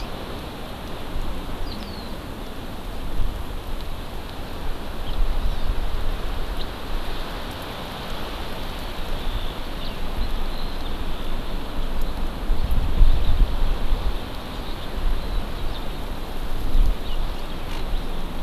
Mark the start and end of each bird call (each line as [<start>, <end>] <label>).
[1.60, 2.10] Eurasian Skylark (Alauda arvensis)
[5.00, 5.20] House Finch (Haemorhous mexicanus)
[5.40, 5.70] Hawaii Amakihi (Chlorodrepanis virens)
[6.50, 6.70] House Finch (Haemorhous mexicanus)
[8.70, 11.90] Eurasian Skylark (Alauda arvensis)
[9.80, 9.90] House Finch (Haemorhous mexicanus)
[12.90, 18.43] Eurasian Skylark (Alauda arvensis)